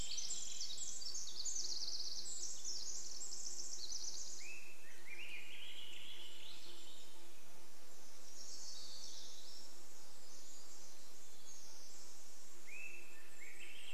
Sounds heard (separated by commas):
Pacific Wren song, Swainson's Thrush song, insect buzz, Golden-crowned Kinglet song, Swainson's Thrush call, warbler song